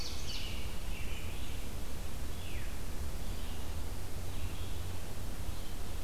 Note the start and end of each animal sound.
0.0s-0.7s: Ovenbird (Seiurus aurocapilla)
0.0s-1.5s: American Robin (Turdus migratorius)
0.0s-6.0s: Red-eyed Vireo (Vireo olivaceus)
2.3s-2.8s: Veery (Catharus fuscescens)

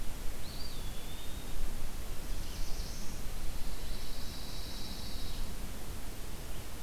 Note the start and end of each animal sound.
0.2s-1.9s: Eastern Wood-Pewee (Contopus virens)
2.0s-3.2s: Black-throated Blue Warbler (Setophaga caerulescens)
3.4s-5.5s: Pine Warbler (Setophaga pinus)
3.9s-5.4s: Ovenbird (Seiurus aurocapilla)

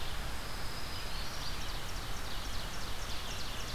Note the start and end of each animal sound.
0.0s-3.7s: Red-eyed Vireo (Vireo olivaceus)
0.2s-1.5s: Black-throated Green Warbler (Setophaga virens)
1.3s-3.7s: Ovenbird (Seiurus aurocapilla)

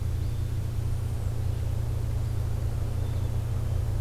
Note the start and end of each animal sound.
0.1s-0.5s: Eastern Phoebe (Sayornis phoebe)
0.7s-1.4s: American Robin (Turdus migratorius)

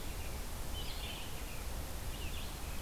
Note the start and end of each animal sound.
0.0s-2.8s: American Robin (Turdus migratorius)
0.0s-2.8s: Red-eyed Vireo (Vireo olivaceus)

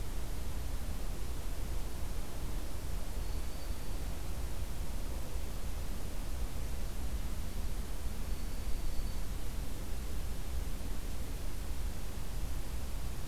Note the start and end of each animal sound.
2.9s-4.2s: Black-throated Green Warbler (Setophaga virens)
8.1s-9.4s: Black-throated Green Warbler (Setophaga virens)

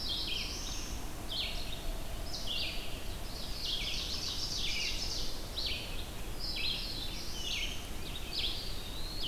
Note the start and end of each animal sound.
0.0s-1.1s: Black-throated Blue Warbler (Setophaga caerulescens)
0.0s-9.3s: Red-eyed Vireo (Vireo olivaceus)
3.0s-5.6s: Ovenbird (Seiurus aurocapilla)
6.1s-7.8s: Black-throated Blue Warbler (Setophaga caerulescens)
8.2s-9.3s: Eastern Wood-Pewee (Contopus virens)

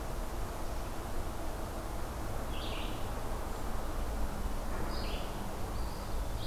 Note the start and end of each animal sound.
2.5s-6.5s: Red-eyed Vireo (Vireo olivaceus)
5.6s-6.5s: Eastern Wood-Pewee (Contopus virens)

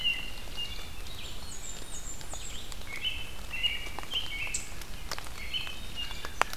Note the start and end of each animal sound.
0.0s-1.2s: American Robin (Turdus migratorius)
0.0s-6.6s: Red-eyed Vireo (Vireo olivaceus)
1.1s-2.7s: Blackburnian Warbler (Setophaga fusca)
1.2s-2.1s: Black-capped Chickadee (Poecile atricapillus)
2.6s-4.7s: American Robin (Turdus migratorius)
5.3s-6.1s: Black-capped Chickadee (Poecile atricapillus)
5.4s-6.6s: American Robin (Turdus migratorius)

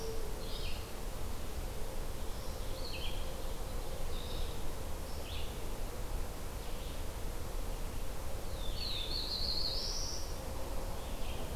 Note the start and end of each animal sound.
0.0s-11.6s: Red-eyed Vireo (Vireo olivaceus)
8.3s-10.4s: Black-throated Blue Warbler (Setophaga caerulescens)

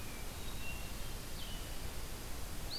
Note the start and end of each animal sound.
0.0s-1.3s: Hermit Thrush (Catharus guttatus)
0.0s-2.8s: Blue-headed Vireo (Vireo solitarius)
1.0s-2.7s: Dark-eyed Junco (Junco hyemalis)

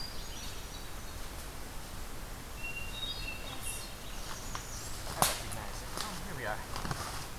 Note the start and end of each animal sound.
0.0s-1.5s: Hermit Thrush (Catharus guttatus)
2.4s-4.3s: Hermit Thrush (Catharus guttatus)
4.0s-5.1s: American Redstart (Setophaga ruticilla)

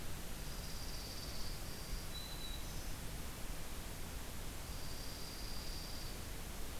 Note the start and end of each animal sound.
0.3s-1.5s: Dark-eyed Junco (Junco hyemalis)
1.6s-2.9s: Black-throated Green Warbler (Setophaga virens)
4.7s-6.2s: Dark-eyed Junco (Junco hyemalis)

